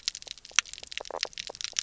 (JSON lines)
{"label": "biophony, knock croak", "recorder": "SoundTrap 300"}